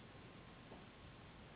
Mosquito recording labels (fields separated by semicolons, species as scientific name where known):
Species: Anopheles gambiae s.s.; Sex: female; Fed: unfed; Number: one; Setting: insect culture